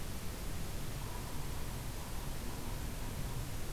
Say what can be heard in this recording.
Yellow-bellied Sapsucker